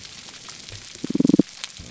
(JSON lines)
{"label": "biophony, damselfish", "recorder": "SoundTrap 300"}